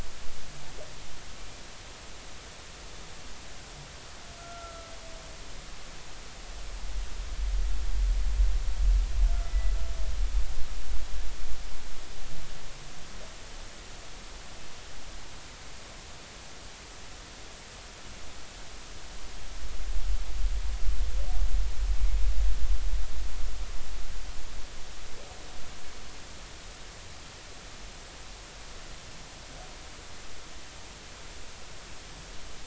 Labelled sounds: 4.4	4.9	humpback whale, 1.3 to 1.4 kHz
9.3	9.7	humpback whale, 1.3 to 2.0 kHz

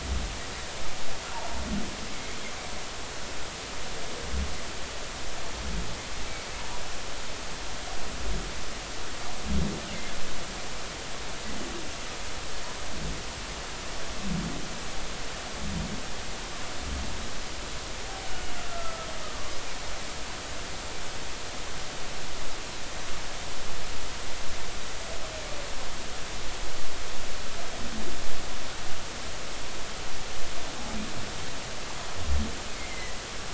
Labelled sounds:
1.3	1.6	humpback whale, 0.83 to 0.99 kHz
18.6	19.6	humpback whale, 1.0 to 1.4 kHz
32.8	33.2	humpback whale, 1.9 to 2.2 kHz

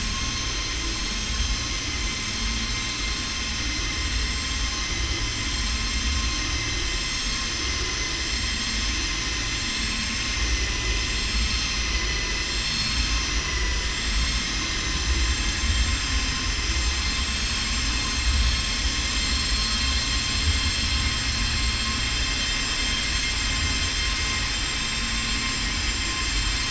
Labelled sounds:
0.8	1.9	vessel noise, 5.8 to 7.4 kHz

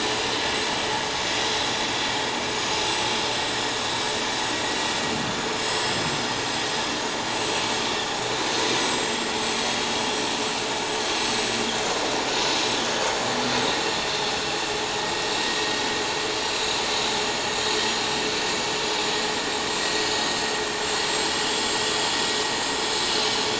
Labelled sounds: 2.5	2.8	vessel noise, 6.5 to 6.7 kHz
4.4	4.7	vessel noise, 7.6 to 7.7 kHz
5.6	6.6	vessel noise, 7.4 to 7.8 kHz
7.2	7.6	vessel noise, 6.7 to 7.8 kHz
8.7	10.3	vessel noise, 7.3 to 8.0 kHz
11.1	12.8	vessel noise, 7.6 to 8.0 kHz
13.7	14.3	vessel noise, 3.5 to 7.6 kHz
16.3	16.7	vessel noise, 7.5 to 7.6 kHz
19.7	20.0	vessel noise, 7.5 to 7.6 kHz
20.9	21.4	vessel noise, 7.5 to 7.7 kHz
22.8	23.1	vessel noise, 7.6 to 7.8 kHz

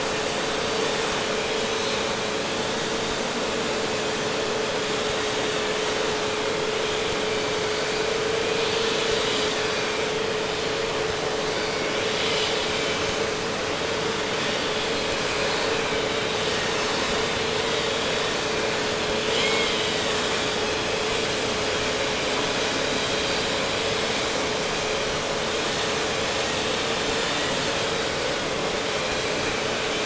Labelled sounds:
7.2	10.1	vessel noise, 1.7 to 5.0 kHz
11.4	13.5	vessel noise, 2.0 to 5.0 kHz
14.4	18.6	vessel noise, 1.7 to 5.1 kHz
19.3	24.3	vessel noise, 1.8 to 5.5 kHz

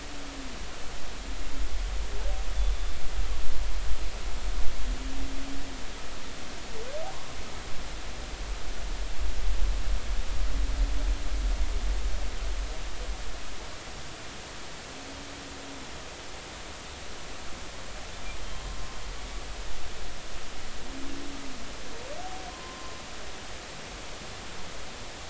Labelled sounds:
7.1	7.4	humpback whale, 0.93 to 1.2 kHz
22.5	23.0	humpback whale, 0.96 to 1.1 kHz

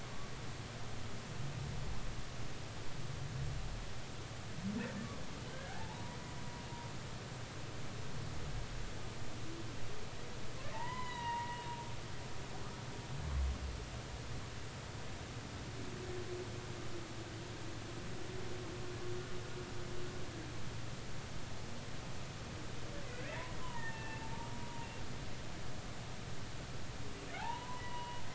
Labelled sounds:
5.5	6.2	humpback whale, 0.80 to 1.8 kHz
10.6	11.6	humpback whale, 0.83 to 4.0 kHz
23.6	24.2	humpback whale, 0.83 to 2.8 kHz
24.6	24.9	humpback whale, 0.90 to 0.99 kHz
27.8	28.3	humpback whale, 0.80 to 3.0 kHz

